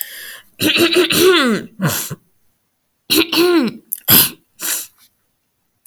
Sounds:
Throat clearing